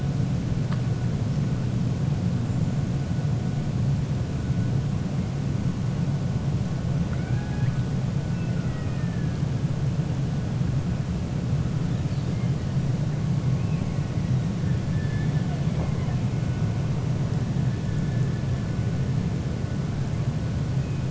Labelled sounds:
7.0	7.8	killer whale, 0.78 to 2.5 kHz
8.3	9.3	killer whale, 1.2 to 2.8 kHz

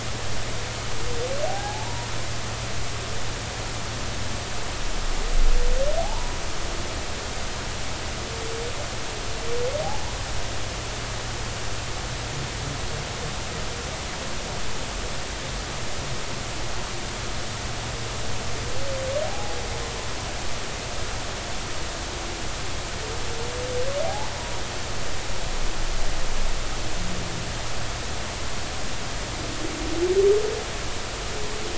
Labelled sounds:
1.5	2.1	humpback whale, 0.80 to 0.99 kHz
6.0	6.3	humpback whale, 0.80 to 1.0 kHz
19.2	19.6	humpback whale, 0.80 to 0.86 kHz
24.0	24.3	humpback whale, 0.80 to 1.1 kHz

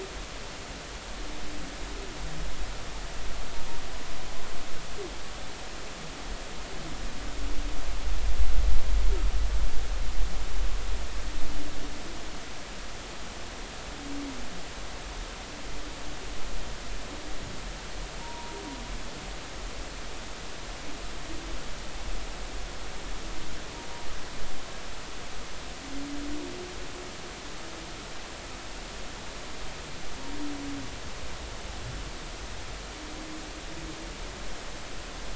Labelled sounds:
18.2	18.6	humpback whale, 0.86 to 1.1 kHz

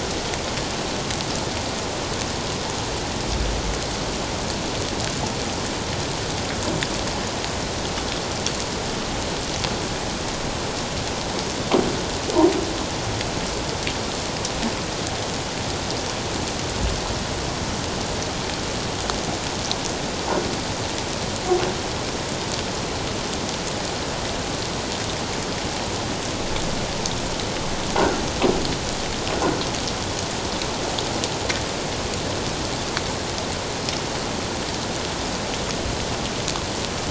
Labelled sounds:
28.0	28.2	croaking sound likely from a nearby submerged object, 1.3 to 1.6 kHz

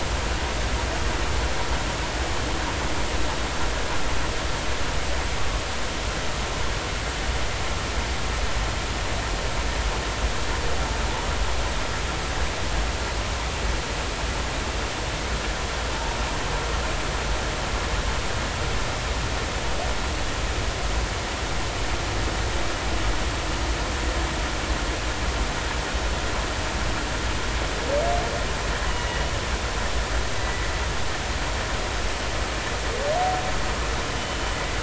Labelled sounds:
28.9	29.2	humpback whale, 2.8 to 3.0 kHz
30.3	30.6	humpback whale, 1.9 to 2.0 kHz

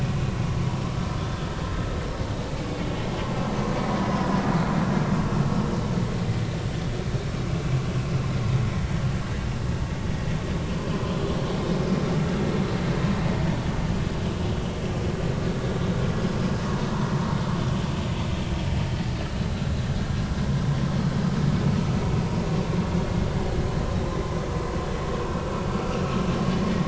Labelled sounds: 10.9	11.2	vessel noise, 0.96 to 1.1 kHz

